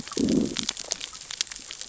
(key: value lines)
label: biophony, growl
recorder: SoundTrap 600 or HydroMoth